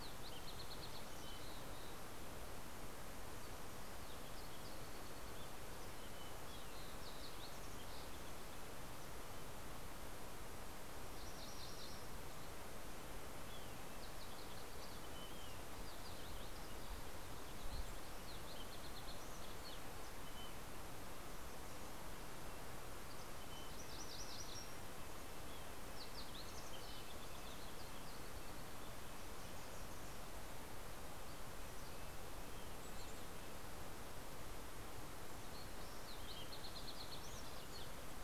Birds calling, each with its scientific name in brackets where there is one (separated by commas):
Yellow-rumped Warbler (Setophaga coronata), Fox Sparrow (Passerella iliaca), Mountain Chickadee (Poecile gambeli), MacGillivray's Warbler (Geothlypis tolmiei), Red-breasted Nuthatch (Sitta canadensis)